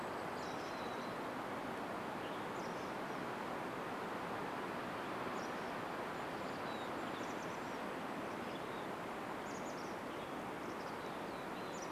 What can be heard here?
Golden-crowned Kinglet song, Mountain Chickadee call, Chestnut-backed Chickadee call, Western Tanager call